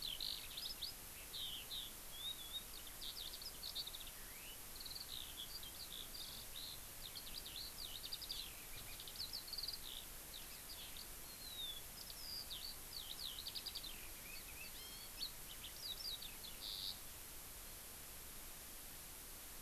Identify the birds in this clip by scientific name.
Alauda arvensis